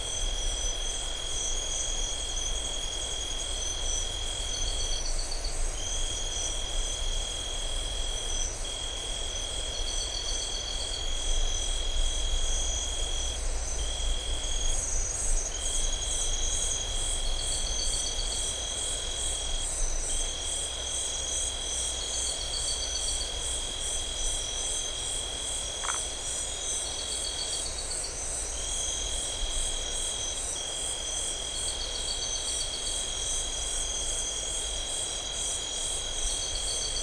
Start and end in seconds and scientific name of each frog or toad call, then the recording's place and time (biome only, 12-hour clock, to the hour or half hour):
25.8	26.0	Phyllomedusa distincta
Atlantic Forest, 9:30pm